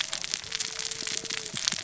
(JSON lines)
{"label": "biophony, cascading saw", "recorder": "SoundTrap 600 or HydroMoth"}